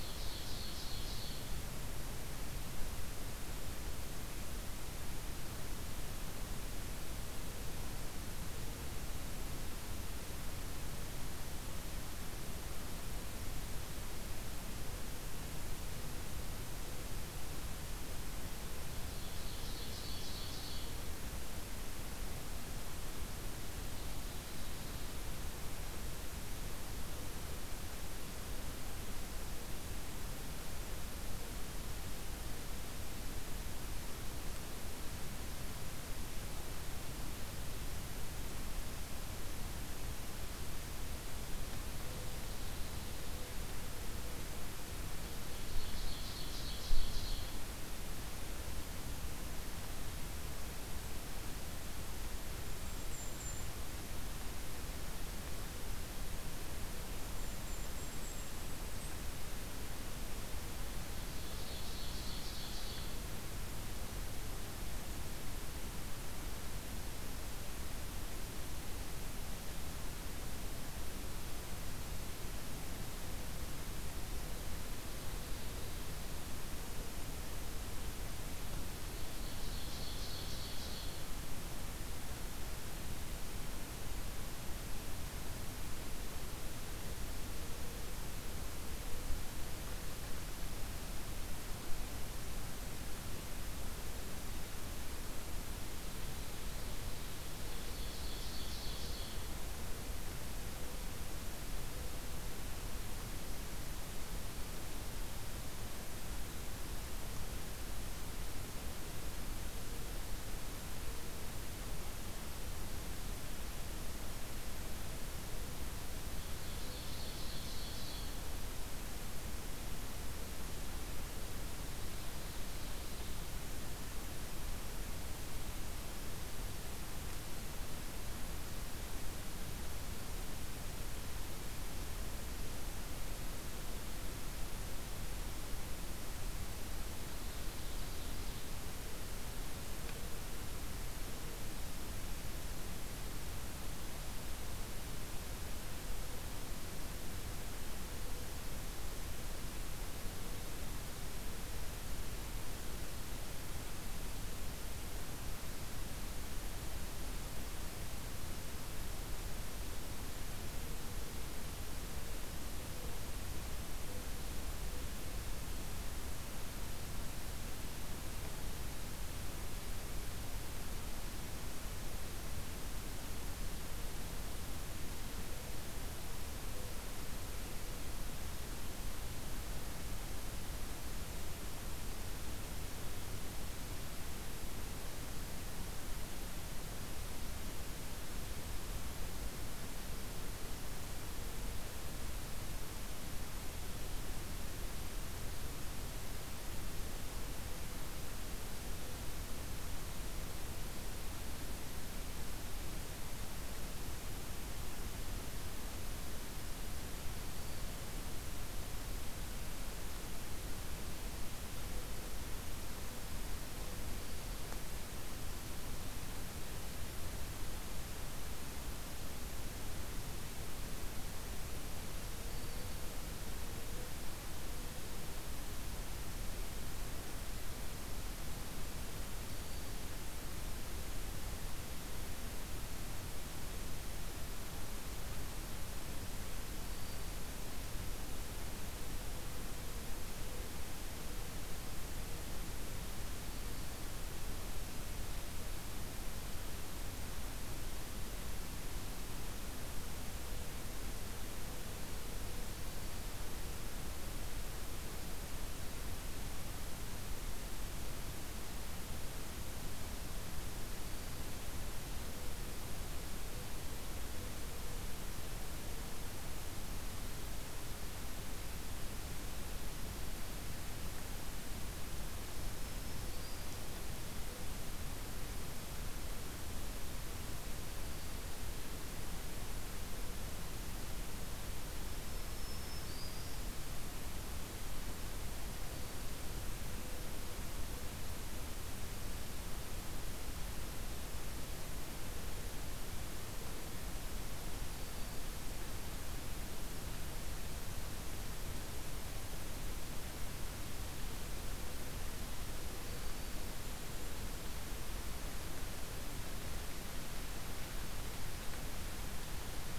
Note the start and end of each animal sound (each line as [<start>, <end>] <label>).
[0.00, 1.65] Ovenbird (Seiurus aurocapilla)
[19.03, 20.93] Ovenbird (Seiurus aurocapilla)
[23.57, 25.12] Ovenbird (Seiurus aurocapilla)
[45.48, 47.49] Ovenbird (Seiurus aurocapilla)
[52.44, 53.78] Golden-crowned Kinglet (Regulus satrapa)
[57.04, 59.22] Golden-crowned Kinglet (Regulus satrapa)
[61.12, 63.14] Ovenbird (Seiurus aurocapilla)
[74.78, 76.04] Ovenbird (Seiurus aurocapilla)
[79.06, 81.17] Ovenbird (Seiurus aurocapilla)
[95.96, 97.35] Ovenbird (Seiurus aurocapilla)
[97.65, 99.45] Ovenbird (Seiurus aurocapilla)
[116.37, 118.45] Ovenbird (Seiurus aurocapilla)
[121.81, 123.46] Ovenbird (Seiurus aurocapilla)
[137.13, 138.75] Ovenbird (Seiurus aurocapilla)
[207.22, 208.06] Black-throated Green Warbler (Setophaga virens)
[214.04, 214.86] Black-throated Green Warbler (Setophaga virens)
[222.32, 223.08] Black-throated Green Warbler (Setophaga virens)
[229.27, 230.19] Black-throated Green Warbler (Setophaga virens)
[236.57, 237.50] Black-throated Green Warbler (Setophaga virens)
[260.71, 261.50] Black-throated Green Warbler (Setophaga virens)
[272.57, 273.74] Black-throated Green Warbler (Setophaga virens)
[282.21, 283.62] Black-throated Green Warbler (Setophaga virens)
[285.78, 286.37] Black-throated Green Warbler (Setophaga virens)
[294.36, 295.49] Black-throated Green Warbler (Setophaga virens)
[302.72, 303.66] Black-throated Green Warbler (Setophaga virens)